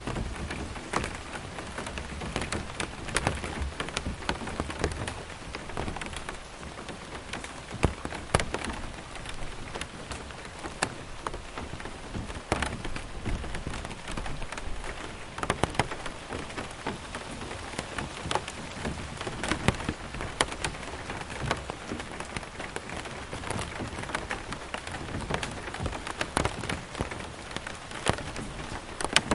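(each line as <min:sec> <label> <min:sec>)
0:00.0 Rain drips slowly on a plastic surface in a steady pattern. 0:29.3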